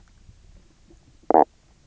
{"label": "biophony, stridulation", "recorder": "SoundTrap 300"}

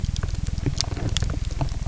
{"label": "anthrophony, boat engine", "recorder": "SoundTrap 300"}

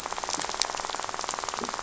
{"label": "biophony, rattle", "recorder": "SoundTrap 500"}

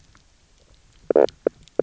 {"label": "biophony, knock croak", "recorder": "SoundTrap 300"}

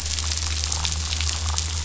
{"label": "anthrophony, boat engine", "recorder": "SoundTrap 500"}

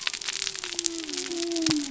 {"label": "biophony", "recorder": "SoundTrap 300"}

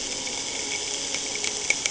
{"label": "anthrophony, boat engine", "recorder": "HydroMoth"}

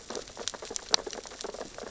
{"label": "biophony, sea urchins (Echinidae)", "recorder": "SoundTrap 600 or HydroMoth"}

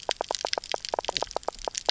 {"label": "biophony, knock croak", "recorder": "SoundTrap 300"}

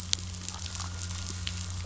{"label": "biophony", "recorder": "SoundTrap 500"}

